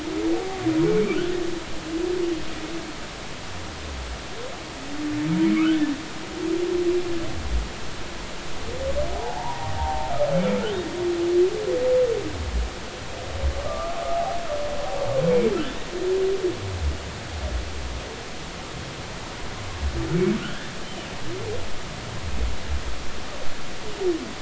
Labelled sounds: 5.6	5.8	humpback whale, 1.1 to 1.6 kHz
9.1	10.1	humpback whale, 0.80 to 1.0 kHz
13.6	14.4	humpback whale, 0.80 to 1.3 kHz

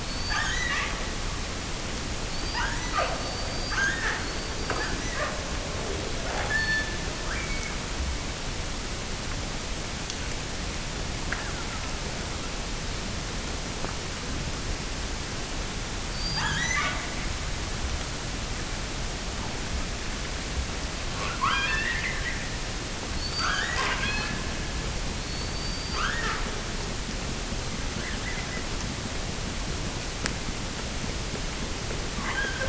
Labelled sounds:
0.0	1.1	killer whale, offshore, 0.52 to 7.7 kHz
2.3	5.4	killer whale, offshore, 0.30 to 7.1 kHz
6.4	7.9	killer whale, offshore, 1.0 to 5.6 kHz
16.1	17.2	killer whale, offshore, 0.48 to 8.0 kHz
21.2	22.6	killer whale, offshore, 0.70 to 5.7 kHz
23.2	24.5	killer whale, offshore, 0.34 to 7.2 kHz
25.1	26.5	killer whale, offshore, 0.84 to 7.1 kHz
32.1	32.6	killer whale, offshore, 0.55 to 3.4 kHz

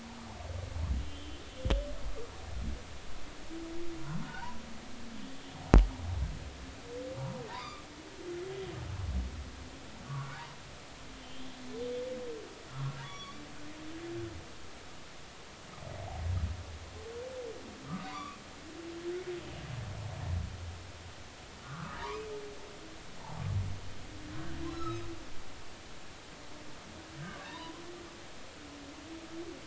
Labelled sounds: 1.0	1.9	humpback whale, 2.9 to 3.2 kHz
4.0	4.6	humpback whale, 0.80 to 1.6 kHz
7.5	7.8	humpback whale, 0.86 to 5.0 kHz
10.0	10.4	humpback whale, 1.1 to 1.5 kHz
11.2	11.6	humpback whale, 3.0 to 3.3 kHz
12.7	13.4	humpback whale, 1.1 to 3.5 kHz
18.0	18.4	humpback whale, 0.90 to 2.6 kHz
21.6	22.3	humpback whale, 0.86 to 2.6 kHz
24.7	25.1	humpback whale, 1.2 to 5.4 kHz
27.4	27.8	humpback whale, 0.86 to 4.0 kHz

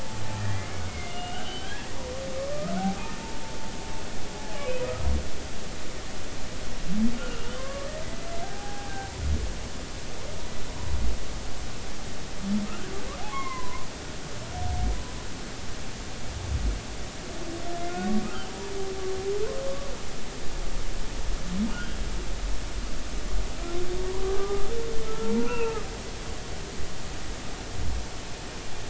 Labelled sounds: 0.4	1.9	humpback whale, 1.5 to 3.4 kHz
4.4	5.1	humpback whale, 0.80 to 1.3 kHz
7.2	7.9	humpback whale, 0.99 to 3.0 kHz
8.4	9.1	humpback whale, 0.80 to 0.86 kHz
13.3	13.9	humpback whale, 0.96 to 2.2 kHz
18.5	18.7	humpback whale, 0.90 to 0.99 kHz
21.7	22.0	humpback whale, 1.2 to 1.7 kHz
24.4	25.8	humpback whale, 0.83 to 2.8 kHz

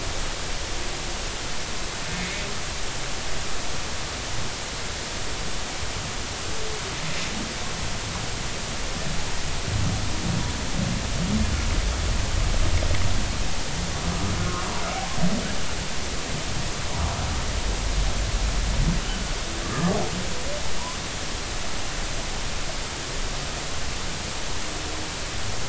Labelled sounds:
19.6	20.0	humpback whale, 1.0 to 1.3 kHz

